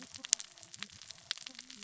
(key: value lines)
label: biophony, cascading saw
recorder: SoundTrap 600 or HydroMoth